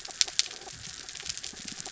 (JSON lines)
{"label": "anthrophony, mechanical", "recorder": "SoundTrap 300"}